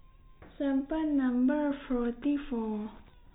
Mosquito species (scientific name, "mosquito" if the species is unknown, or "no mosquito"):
no mosquito